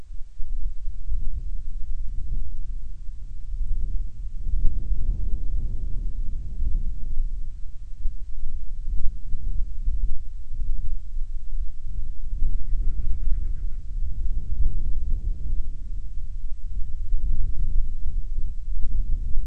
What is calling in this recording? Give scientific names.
Hydrobates castro